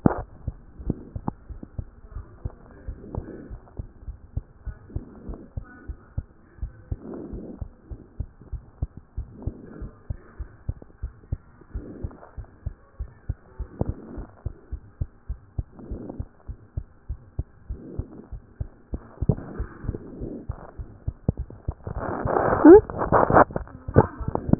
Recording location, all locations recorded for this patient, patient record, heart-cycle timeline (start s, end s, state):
pulmonary valve (PV)
aortic valve (AV)+pulmonary valve (PV)+tricuspid valve (TV)
#Age: Child
#Sex: Female
#Height: 110.0 cm
#Weight: 19.9 kg
#Pregnancy status: False
#Murmur: Absent
#Murmur locations: nan
#Most audible location: nan
#Systolic murmur timing: nan
#Systolic murmur shape: nan
#Systolic murmur grading: nan
#Systolic murmur pitch: nan
#Systolic murmur quality: nan
#Diastolic murmur timing: nan
#Diastolic murmur shape: nan
#Diastolic murmur grading: nan
#Diastolic murmur pitch: nan
#Diastolic murmur quality: nan
#Outcome: Normal
#Campaign: 2014 screening campaign
0.00	0.12	unannotated
0.12	0.14	diastole
0.14	0.26	S1
0.26	0.46	systole
0.46	0.54	S2
0.54	0.86	diastole
0.86	0.96	S1
0.96	1.16	systole
1.16	1.24	S2
1.24	1.50	diastole
1.50	1.60	S1
1.60	1.76	systole
1.76	1.86	S2
1.86	2.14	diastole
2.14	2.24	S1
2.24	2.44	systole
2.44	2.52	S2
2.52	2.86	diastole
2.86	2.98	S1
2.98	3.14	systole
3.14	3.26	S2
3.26	3.50	diastole
3.50	3.60	S1
3.60	3.78	systole
3.78	3.88	S2
3.88	4.06	diastole
4.06	4.16	S1
4.16	4.34	systole
4.34	4.44	S2
4.44	4.66	diastole
4.66	4.76	S1
4.76	4.94	systole
4.94	5.04	S2
5.04	5.26	diastole
5.26	5.38	S1
5.38	5.56	systole
5.56	5.66	S2
5.66	5.88	diastole
5.88	5.98	S1
5.98	6.16	systole
6.16	6.26	S2
6.26	6.60	diastole
6.60	6.72	S1
6.72	6.90	systole
6.90	6.98	S2
6.98	7.32	diastole
7.32	7.44	S1
7.44	7.60	systole
7.60	7.70	S2
7.70	7.90	diastole
7.90	8.00	S1
8.00	8.18	systole
8.18	8.28	S2
8.28	8.52	diastole
8.52	8.62	S1
8.62	8.80	systole
8.80	8.90	S2
8.90	9.16	diastole
9.16	9.28	S1
9.28	9.44	systole
9.44	9.54	S2
9.54	9.80	diastole
9.80	9.92	S1
9.92	10.08	systole
10.08	10.18	S2
10.18	10.38	diastole
10.38	10.50	S1
10.50	10.66	systole
10.66	10.76	S2
10.76	11.02	diastole
11.02	11.12	S1
11.12	11.30	systole
11.30	11.40	S2
11.40	11.74	diastole
11.74	11.86	S1
11.86	12.02	systole
12.02	12.12	S2
12.12	12.38	diastole
12.38	12.48	S1
12.48	12.64	systole
12.64	12.74	S2
12.74	12.98	diastole
12.98	13.10	S1
13.10	13.28	systole
13.28	13.38	S2
13.38	13.58	diastole
13.58	13.68	S1
13.68	13.82	systole
13.82	13.94	S2
13.94	14.16	diastole
14.16	14.26	S1
14.26	14.44	systole
14.44	14.54	S2
14.54	14.72	diastole
14.72	14.82	S1
14.82	15.00	systole
15.00	15.10	S2
15.10	15.28	diastole
15.28	15.40	S1
15.40	15.56	systole
15.56	15.64	S2
15.64	15.90	diastole
15.90	16.02	S1
16.02	16.18	systole
16.18	16.28	S2
16.28	16.48	diastole
16.48	16.58	S1
16.58	16.76	systole
16.76	16.86	S2
16.86	17.08	diastole
17.08	17.20	S1
17.20	17.38	systole
17.38	17.46	S2
17.46	17.70	diastole
17.70	17.80	S1
17.80	17.96	systole
17.96	18.06	S2
18.06	18.32	diastole
18.32	18.42	S1
18.42	18.58	systole
18.58	18.70	S2
18.70	18.94	diastole
18.94	19.02	S1
19.02	19.22	systole
19.22	19.34	S2
19.34	19.58	diastole
19.58	19.68	S1
19.68	19.86	systole
19.86	19.96	S2
19.96	20.20	diastole
20.20	20.32	S1
20.32	20.48	systole
20.48	20.58	S2
20.58	20.80	diastole
20.80	20.90	S1
20.90	21.06	systole
21.06	21.14	S2
21.14	21.36	diastole
21.36	21.48	S1
21.48	21.66	systole
21.66	21.76	S2
21.76	24.59	unannotated